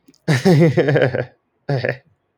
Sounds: Laughter